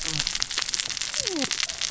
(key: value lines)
label: biophony, cascading saw
recorder: SoundTrap 600 or HydroMoth